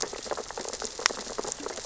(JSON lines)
{"label": "biophony, sea urchins (Echinidae)", "recorder": "SoundTrap 600 or HydroMoth"}